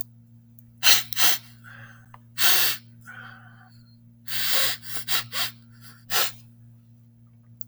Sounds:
Sniff